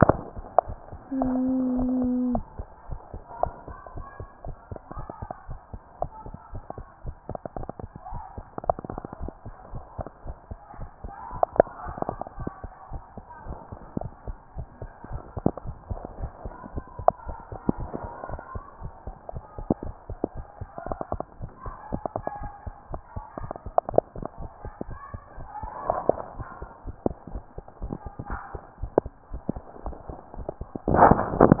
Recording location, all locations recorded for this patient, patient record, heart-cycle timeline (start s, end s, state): tricuspid valve (TV)
aortic valve (AV)+pulmonary valve (PV)+tricuspid valve (TV)+mitral valve (MV)
#Age: Child
#Sex: Female
#Height: 111.0 cm
#Weight: 20.3 kg
#Pregnancy status: False
#Murmur: Absent
#Murmur locations: nan
#Most audible location: nan
#Systolic murmur timing: nan
#Systolic murmur shape: nan
#Systolic murmur grading: nan
#Systolic murmur pitch: nan
#Systolic murmur quality: nan
#Diastolic murmur timing: nan
#Diastolic murmur shape: nan
#Diastolic murmur grading: nan
#Diastolic murmur pitch: nan
#Diastolic murmur quality: nan
#Outcome: Abnormal
#Campaign: 2014 screening campaign
0.00	12.38	unannotated
12.38	12.50	S1
12.50	12.62	systole
12.62	12.72	S2
12.72	12.92	diastole
12.92	13.02	S1
13.02	13.16	systole
13.16	13.26	S2
13.26	13.46	diastole
13.46	13.58	S1
13.58	13.70	systole
13.70	13.80	S2
13.80	13.98	diastole
13.98	14.12	S1
14.12	14.26	systole
14.26	14.36	S2
14.36	14.56	diastole
14.56	14.68	S1
14.68	14.82	systole
14.82	14.90	S2
14.90	15.10	diastole
15.10	15.22	S1
15.22	15.36	systole
15.36	15.44	S2
15.44	15.64	diastole
15.64	31.60	unannotated